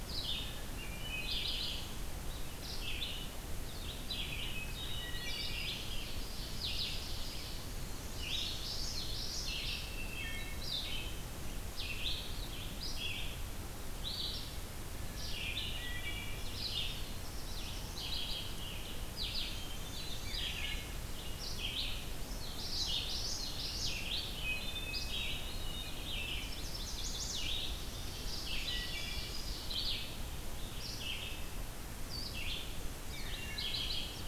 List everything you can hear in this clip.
Red-eyed Vireo, Wood Thrush, Hermit Thrush, Ovenbird, Common Yellowthroat, Black-throated Blue Warbler, Chestnut-sided Warbler